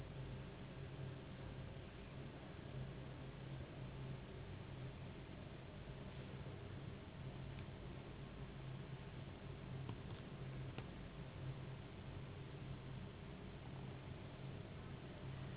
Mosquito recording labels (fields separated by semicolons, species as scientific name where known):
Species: Anopheles gambiae s.s.; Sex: female; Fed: unfed; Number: one; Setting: insect culture